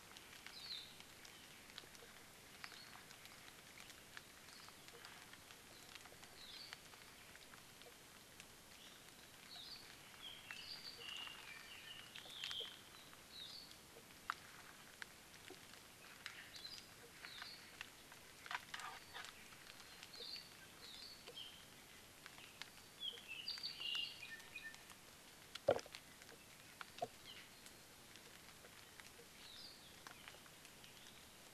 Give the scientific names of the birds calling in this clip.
Loxops coccineus, Himatione sanguinea